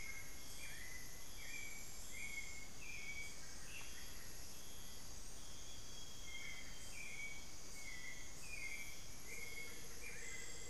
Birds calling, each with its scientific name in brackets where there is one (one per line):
Amazonian Grosbeak (Cyanoloxia rothschildii)
Hauxwell's Thrush (Turdus hauxwelli)
Amazonian Motmot (Momotus momota)